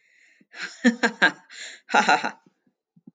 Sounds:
Laughter